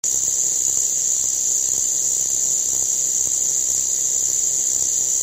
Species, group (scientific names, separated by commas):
Arunta perulata, Cicadidae